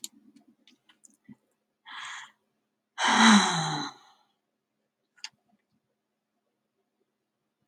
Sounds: Sigh